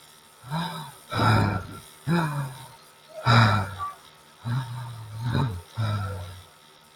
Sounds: Sigh